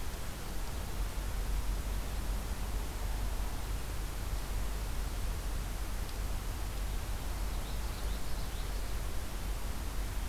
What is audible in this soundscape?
Common Yellowthroat